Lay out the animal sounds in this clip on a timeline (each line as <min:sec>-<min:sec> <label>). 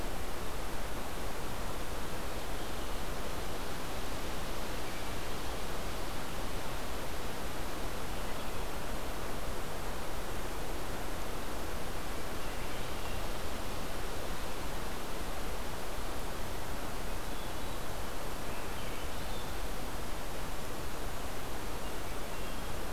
0:16.9-0:17.9 Hermit Thrush (Catharus guttatus)
0:18.2-0:19.6 Swainson's Thrush (Catharus ustulatus)